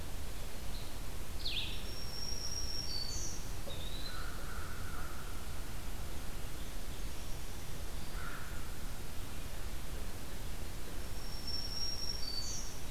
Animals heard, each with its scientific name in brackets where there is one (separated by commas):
Black-throated Green Warbler (Setophaga virens), Blue-headed Vireo (Vireo solitarius), Eastern Wood-Pewee (Contopus virens)